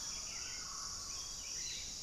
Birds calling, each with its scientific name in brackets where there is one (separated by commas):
Mealy Parrot (Amazona farinosa), Buff-throated Saltator (Saltator maximus)